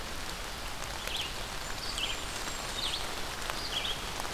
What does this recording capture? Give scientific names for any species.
Vireo olivaceus, Setophaga fusca